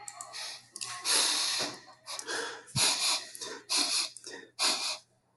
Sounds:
Sniff